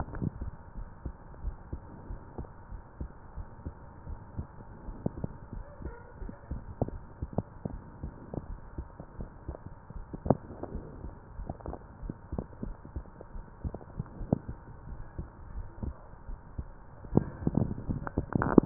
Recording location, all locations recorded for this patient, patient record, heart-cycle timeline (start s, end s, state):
aortic valve (AV)
aortic valve (AV)+pulmonary valve (PV)
#Age: Adolescent
#Sex: Female
#Height: 160.0 cm
#Weight: 62.1 kg
#Pregnancy status: False
#Murmur: Absent
#Murmur locations: nan
#Most audible location: nan
#Systolic murmur timing: nan
#Systolic murmur shape: nan
#Systolic murmur grading: nan
#Systolic murmur pitch: nan
#Systolic murmur quality: nan
#Diastolic murmur timing: nan
#Diastolic murmur shape: nan
#Diastolic murmur grading: nan
#Diastolic murmur pitch: nan
#Diastolic murmur quality: nan
#Outcome: Normal
#Campaign: 2015 screening campaign
0.00	0.54	unannotated
0.54	0.76	diastole
0.76	0.88	S1
0.88	1.02	systole
1.02	1.16	S2
1.16	1.38	diastole
1.38	1.54	S1
1.54	1.70	systole
1.70	1.80	S2
1.80	2.06	diastole
2.06	2.20	S1
2.20	2.38	systole
2.38	2.48	S2
2.48	2.72	diastole
2.72	2.80	S1
2.80	2.98	systole
2.98	3.08	S2
3.08	3.34	diastole
3.34	3.46	S1
3.46	3.64	systole
3.64	3.74	S2
3.74	4.06	diastole
4.06	4.20	S1
4.20	4.36	systole
4.36	4.48	S2
4.48	4.82	diastole
4.82	4.96	S1
4.96	5.16	systole
5.16	5.28	S2
5.28	5.54	diastole
5.54	5.64	S1
5.64	5.82	systole
5.82	5.94	S2
5.94	6.18	diastole
6.18	6.34	S1
6.34	6.48	systole
6.48	6.62	S2
6.62	6.86	diastole
6.86	7.00	S1
7.00	7.20	systole
7.20	7.34	S2
7.34	7.66	diastole
7.66	7.80	S1
7.80	8.00	systole
8.00	8.12	S2
8.12	8.44	diastole
8.44	8.58	S1
8.58	8.74	systole
8.74	8.86	S2
8.86	9.16	diastole
9.16	9.30	S1
9.30	9.46	systole
9.46	9.56	S2
9.56	9.90	diastole
9.90	10.06	S1
10.06	10.24	systole
10.24	10.38	S2
10.38	10.68	diastole
10.68	10.82	S1
10.82	11.00	systole
11.00	11.12	S2
11.12	11.36	diastole
11.36	11.48	S1
11.48	11.66	systole
11.66	11.76	S2
11.76	12.02	diastole
12.02	12.14	S1
12.14	12.32	systole
12.32	12.40	S2
12.40	12.62	diastole
12.62	12.76	S1
12.76	12.94	systole
12.94	13.04	S2
13.04	13.34	diastole
13.34	13.44	S1
13.44	13.64	systole
13.64	13.78	S2
13.78	14.12	diastole
14.12	14.28	S1
14.28	14.48	systole
14.48	14.58	S2
14.58	14.86	diastole
14.86	15.00	S1
15.00	15.18	systole
15.18	15.28	S2
15.28	15.54	diastole
15.54	15.66	S1
15.66	15.78	systole
15.78	15.94	S2
15.94	16.28	diastole
16.28	16.38	S1
16.38	16.58	systole
16.58	16.72	S2
16.72	17.02	diastole
17.02	18.66	unannotated